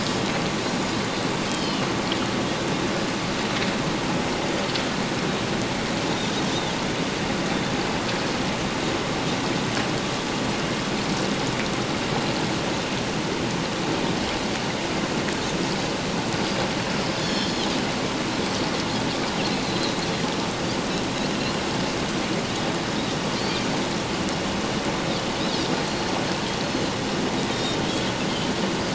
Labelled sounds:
1.5	1.9	Pacific white-sided dolphin, 2.8 to 3.2 kHz
17.2	17.7	Pacific white-sided dolphin, 3.1 to 5.6 kHz
19.7	19.9	Pacific white-sided dolphin, 3.9 to 4.2 kHz
27.5	27.9	Pacific white-sided dolphin, 3.1 to 3.8 kHz

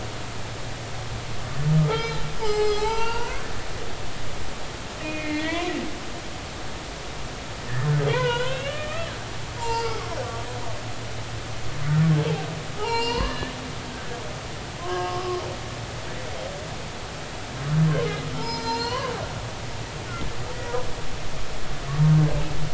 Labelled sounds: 1.9	3.5	humpback whale, 0.80 to 7.7 kHz
5.0	5.7	humpback whale, 1.8 to 2.5 kHz
8.1	9.1	humpback whale, 0.90 to 3.6 kHz
9.6	10.0	humpback whale, 0.83 to 7.0 kHz
12.8	13.5	humpback whale, 0.80 to 8.0 kHz
14.8	15.4	humpback whale, 0.99 to 1.7 kHz
18.4	19.1	humpback whale, 0.86 to 5.6 kHz

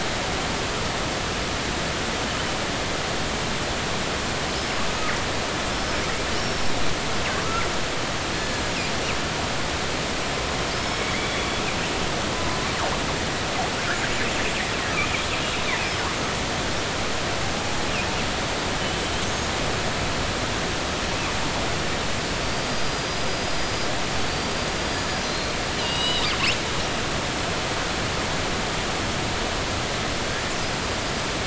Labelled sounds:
5.7	6.7	killer whale, northern resident, G clan, 5.1 to 5.6 kHz
8.3	8.6	killer whale, northern resident, G clan, 1.6 to 4.4 kHz
10.7	11.4	killer whale, northern resident, G clan, 3.3 to 5.4 kHz
22.4	23.9	killer whale, northern resident, G clan, 4.4 to 5.0 kHz
24.1	25.2	killer whale, northern resident, G clan, 4.4 to 4.9 kHz
25.8	26.6	killer whale, northern resident, G clan, 2.8 to 8.0 kHz

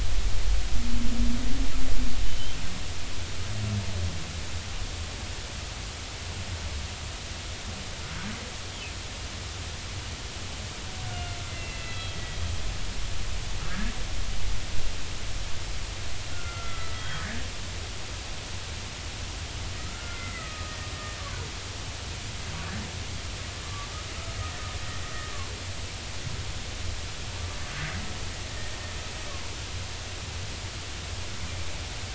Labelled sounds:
2.2	2.6	humpback whale, 2.9 to 3.2 kHz
11.5	12.4	humpback whale, 1.9 to 4.0 kHz
13.7	13.9	humpback whale, 1.6 to 1.8 kHz
16.3	17.4	humpback whale, 1.2 to 3.3 kHz
19.8	21.4	humpback whale, 0.93 to 2.1 kHz
24.4	24.6	humpback whale, 1.7 to 2.0 kHz

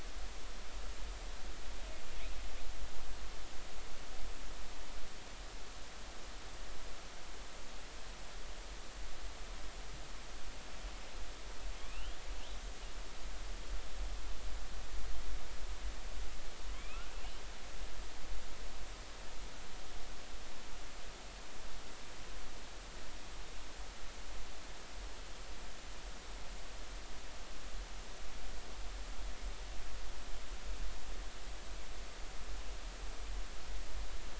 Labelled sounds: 11.8	12.2	killer whale, northern resident, 2.3 to 3.4 kHz
16.8	17.4	killer whale, northern resident, 2.1 to 3.2 kHz

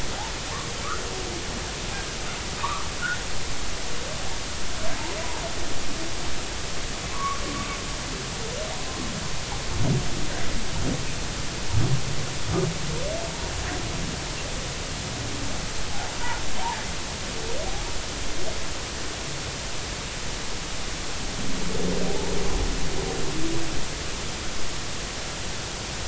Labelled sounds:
2.6	2.9	humpback whale, 0.86 to 1.3 kHz
7.1	7.4	humpback whale, 0.93 to 1.2 kHz
22.1	22.3	humpback whale, 0.80 to 0.96 kHz

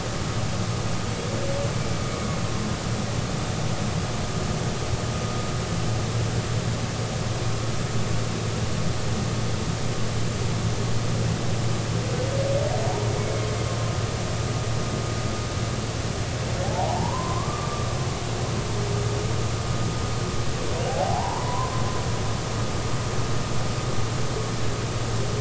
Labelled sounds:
16.6	17.9	humpback whale, 0.80 to 1.2 kHz
20.8	21.7	humpback whale, 0.80 to 1.2 kHz

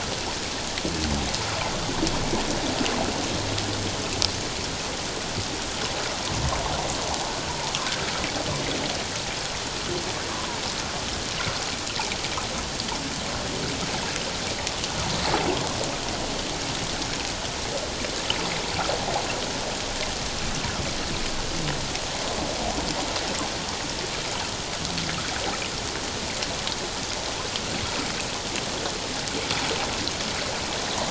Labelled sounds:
10.3	10.6	water noise, 0.91 to 1.2 kHz

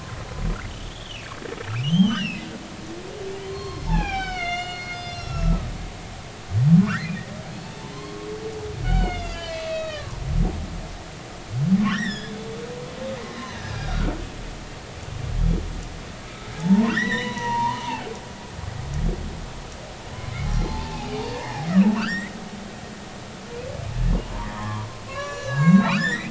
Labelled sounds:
0.9	2.4	humpback whale, 2.2 to 5.9 kHz
3.4	5.7	humpback whale, 0.80 to 7.3 kHz
6.8	7.1	humpback whale, 0.99 to 2.1 kHz
7.9	10.2	humpback whale, 0.93 to 7.0 kHz
11.8	12.4	humpback whale, 1.3 to 5.9 kHz
13.4	14.1	humpback whale, 1.2 to 4.1 kHz
16.6	17.8	humpback whale, 0.80 to 5.9 kHz
20.4	21.6	humpback whale, 0.80 to 4.2 kHz
21.9	22.3	humpback whale, 0.93 to 7.6 kHz
24.5	26.2	humpback whale, 0.83 to 7.2 kHz

